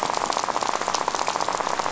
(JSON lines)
{"label": "biophony, rattle", "recorder": "SoundTrap 500"}